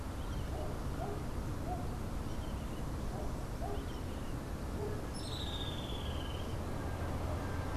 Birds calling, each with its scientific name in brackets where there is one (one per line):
Streak-headed Woodcreeper (Lepidocolaptes souleyetii)